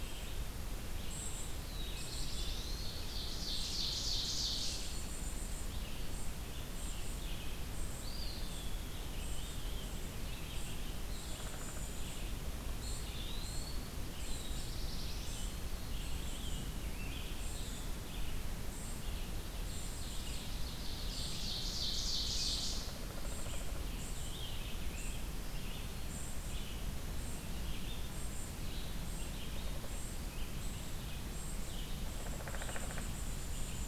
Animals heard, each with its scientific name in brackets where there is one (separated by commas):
Eastern Wood-Pewee (Contopus virens), Black-throated Blue Warbler (Setophaga caerulescens), Red-eyed Vireo (Vireo olivaceus), Rose-breasted Grosbeak (Pheucticus ludovicianus), Downy Woodpecker (Dryobates pubescens), Ovenbird (Seiurus aurocapilla), unidentified call